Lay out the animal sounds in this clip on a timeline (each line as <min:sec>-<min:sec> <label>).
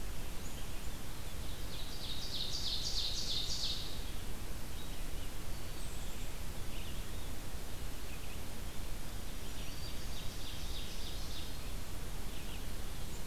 0:01.7-0:04.0 Ovenbird (Seiurus aurocapilla)
0:04.6-0:13.3 Red-eyed Vireo (Vireo olivaceus)
0:05.6-0:06.4 Black-capped Chickadee (Poecile atricapillus)
0:09.3-0:11.6 Ovenbird (Seiurus aurocapilla)
0:09.3-0:10.2 Black-throated Green Warbler (Setophaga virens)